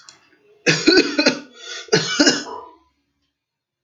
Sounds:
Cough